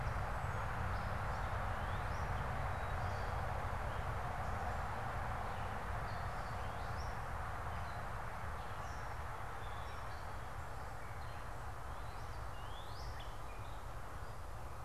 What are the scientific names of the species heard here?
Dumetella carolinensis, Cardinalis cardinalis